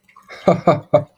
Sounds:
Laughter